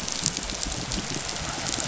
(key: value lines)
label: biophony
recorder: SoundTrap 500